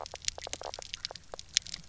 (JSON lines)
{"label": "biophony, knock croak", "recorder": "SoundTrap 300"}